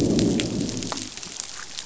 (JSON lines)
{"label": "biophony, growl", "recorder": "SoundTrap 500"}